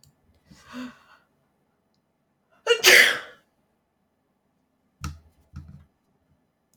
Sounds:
Sneeze